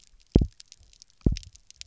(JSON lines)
{"label": "biophony, double pulse", "recorder": "SoundTrap 300"}